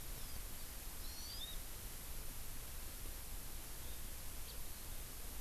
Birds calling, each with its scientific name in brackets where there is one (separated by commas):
House Finch (Haemorhous mexicanus), Hawaii Amakihi (Chlorodrepanis virens)